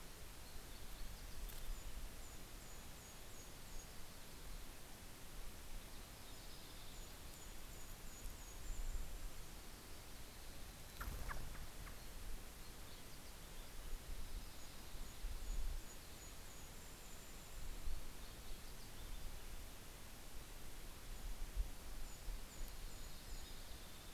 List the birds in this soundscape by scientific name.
Poecile gambeli, Regulus satrapa, Turdus migratorius, Passerina amoena